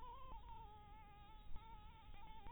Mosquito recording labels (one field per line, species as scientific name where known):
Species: Anopheles maculatus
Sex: female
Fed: blood-fed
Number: one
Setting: cup